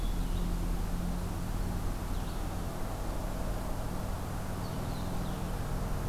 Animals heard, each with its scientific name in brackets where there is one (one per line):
Blue-headed Vireo (Vireo solitarius)